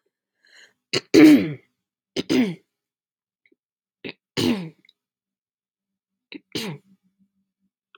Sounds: Throat clearing